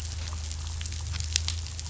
{"label": "anthrophony, boat engine", "recorder": "SoundTrap 500"}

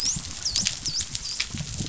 {"label": "biophony, dolphin", "recorder": "SoundTrap 500"}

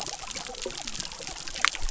{"label": "biophony", "recorder": "SoundTrap 300"}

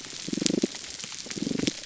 {"label": "biophony, damselfish", "recorder": "SoundTrap 300"}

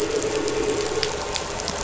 {"label": "anthrophony, boat engine", "recorder": "SoundTrap 500"}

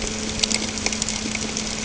{"label": "ambient", "recorder": "HydroMoth"}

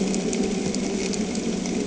{"label": "anthrophony, boat engine", "recorder": "HydroMoth"}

